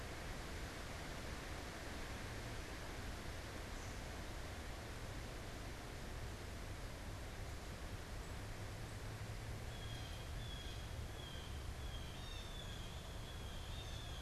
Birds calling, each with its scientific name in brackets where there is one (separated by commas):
Blue Jay (Cyanocitta cristata)